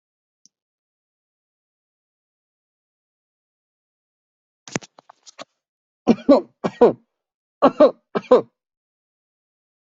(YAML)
expert_labels:
- quality: good
  cough_type: dry
  dyspnea: false
  wheezing: false
  stridor: false
  choking: false
  congestion: false
  nothing: true
  diagnosis: COVID-19
  severity: mild
age: 37
gender: male
respiratory_condition: false
fever_muscle_pain: true
status: symptomatic